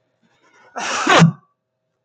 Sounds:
Sneeze